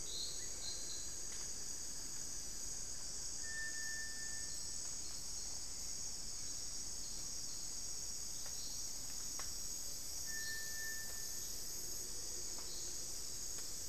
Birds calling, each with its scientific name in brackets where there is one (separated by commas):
unidentified bird, Black-faced Antthrush (Formicarius analis)